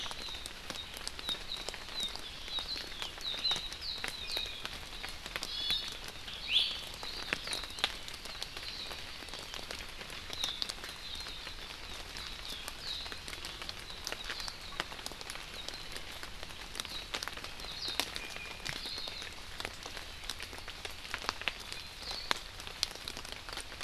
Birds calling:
Iiwi (Drepanis coccinea), Warbling White-eye (Zosterops japonicus)

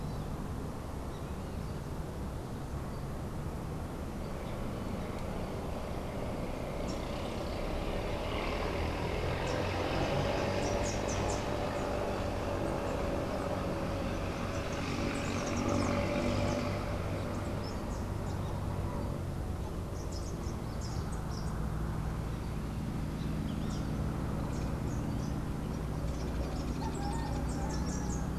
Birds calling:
Rufous-capped Warbler (Basileuterus rufifrons), Hoffmann's Woodpecker (Melanerpes hoffmannii)

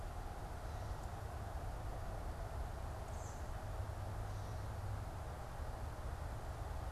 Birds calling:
American Robin (Turdus migratorius)

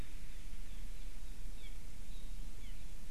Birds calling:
Apapane (Himatione sanguinea)

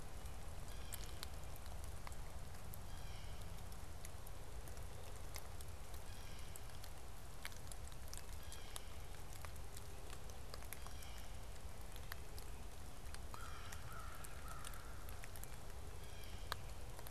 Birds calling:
American Crow (Corvus brachyrhynchos), Blue Jay (Cyanocitta cristata)

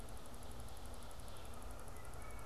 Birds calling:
Canada Goose (Branta canadensis), Red-eyed Vireo (Vireo olivaceus)

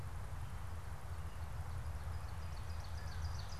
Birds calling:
Ovenbird (Seiurus aurocapilla)

